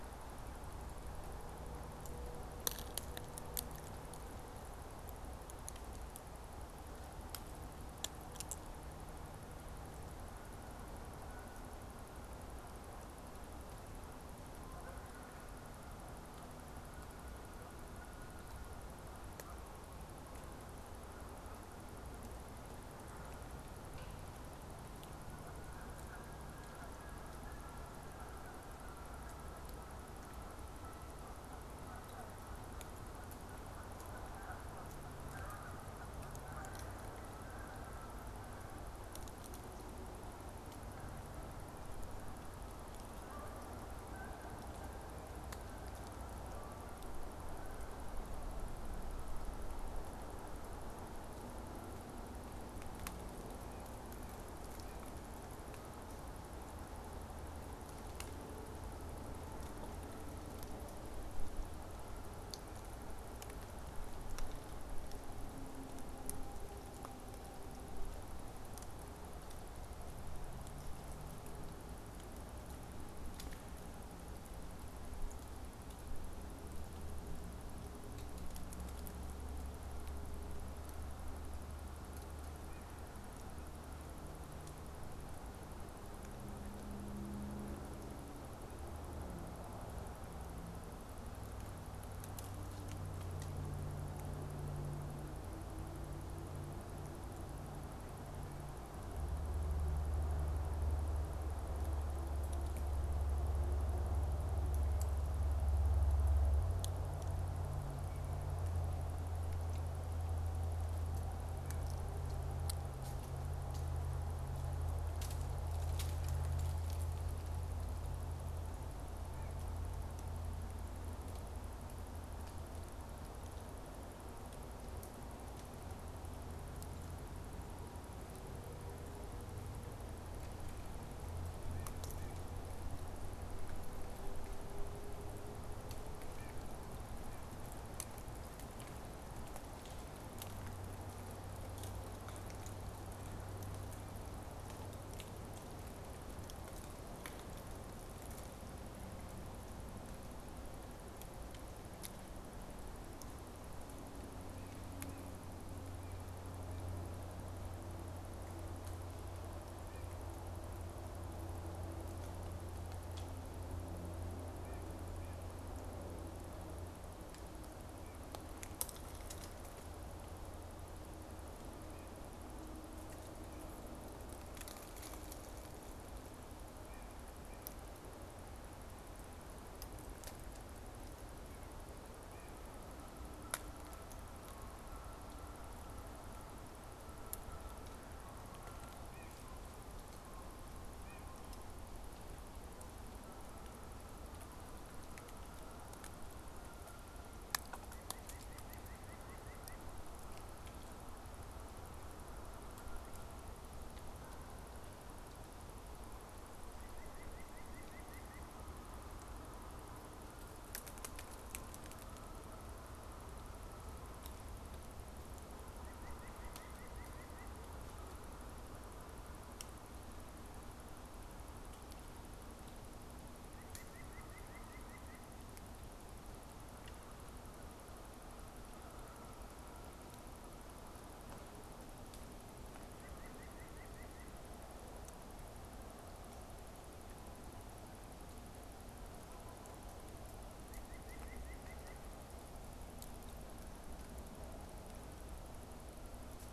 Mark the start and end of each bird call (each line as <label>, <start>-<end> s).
Canada Goose (Branta canadensis), 13.8-68.3 s
White-breasted Nuthatch (Sitta carolinensis), 131.5-132.5 s
White-breasted Nuthatch (Sitta carolinensis), 136.2-137.6 s
White-breasted Nuthatch (Sitta carolinensis), 159.8-160.2 s
White-breasted Nuthatch (Sitta carolinensis), 164.5-165.6 s
White-breasted Nuthatch (Sitta carolinensis), 176.7-177.8 s
White-breasted Nuthatch (Sitta carolinensis), 182.1-182.6 s
Canada Goose (Branta canadensis), 182.8-192.0 s
White-breasted Nuthatch (Sitta carolinensis), 189.0-189.4 s
White-breasted Nuthatch (Sitta carolinensis), 190.9-191.3 s
Canada Goose (Branta canadensis), 193.1-197.9 s
White-breasted Nuthatch (Sitta carolinensis), 197.7-199.9 s
White-breasted Nuthatch (Sitta carolinensis), 206.7-208.6 s
White-breasted Nuthatch (Sitta carolinensis), 215.7-217.6 s
White-breasted Nuthatch (Sitta carolinensis), 223.4-225.4 s
White-breasted Nuthatch (Sitta carolinensis), 232.9-234.5 s
White-breasted Nuthatch (Sitta carolinensis), 240.5-242.2 s